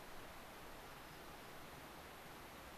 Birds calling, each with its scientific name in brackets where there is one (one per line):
White-crowned Sparrow (Zonotrichia leucophrys)